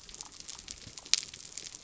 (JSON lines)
{"label": "biophony", "recorder": "SoundTrap 300"}